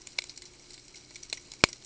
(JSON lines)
{"label": "ambient", "recorder": "HydroMoth"}